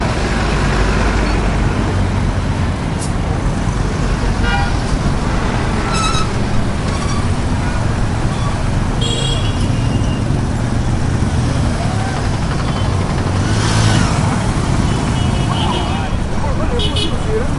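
0.0s Street noise with vehicles. 17.6s
5.3s A vehicle's brakes squeak as it stops. 8.3s
15.0s A vehicle horn honks. 17.6s
15.0s Someone begins speaking, but the audio cuts off. 17.6s

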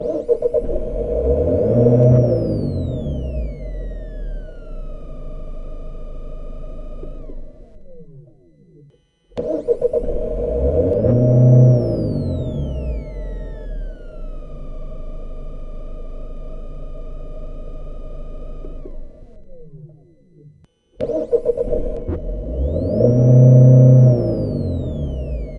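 0.0s A muscle car engine starts with a deep, powerful roar, revs briefly, and then shuts off. 25.6s

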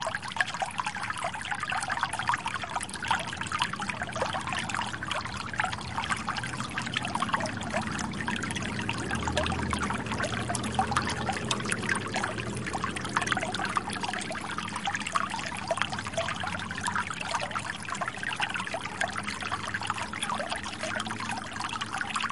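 0.0s Water flowing in a creek. 22.3s

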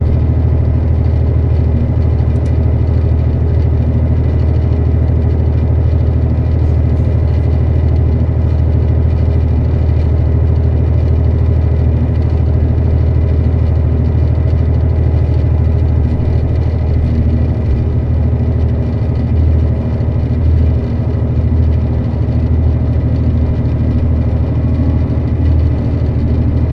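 0.0s A bus engine is rumbling continuously. 26.7s

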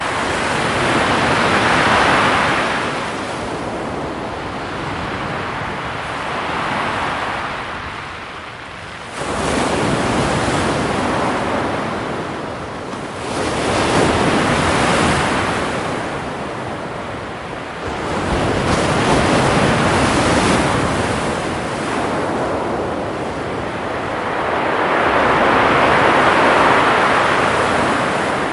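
0.0s Waves hitting the shore. 3.2s
3.2s Small waves continuously hitting the shore. 9.1s
9.2s A big ocean wave hitting the shore. 13.0s
13.2s A large wave hits the shore of an ocean. 16.6s
17.8s A large wave hits the shore of an ocean. 21.6s
24.4s A very big wave hits the shore of an ocean. 28.5s

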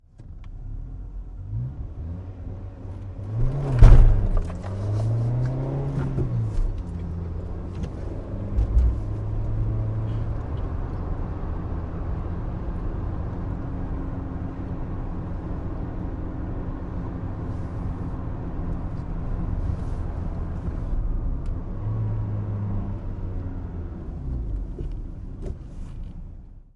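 0.2s An engine is starting nearby. 3.6s
3.7s An engine is revving nearby. 4.6s
4.7s A motorized vehicle is driving. 25.0s
6.1s The engine changes gears. 6.6s
10.1s A person sighs. 10.9s
24.5s An engine is stopping. 26.7s
25.1s A person is walking away. 26.8s

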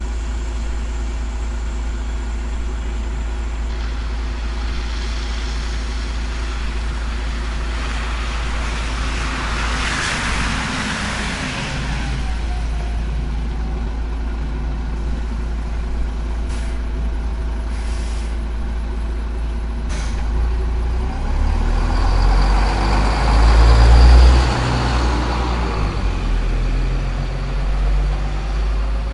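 20.1s A vehicle engine starts or a vehicle passes by very closely. 27.2s

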